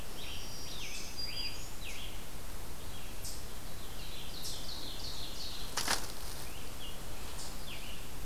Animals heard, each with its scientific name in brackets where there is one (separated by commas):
Ovenbird (Seiurus aurocapilla), Scarlet Tanager (Piranga olivacea), Black-throated Green Warbler (Setophaga virens)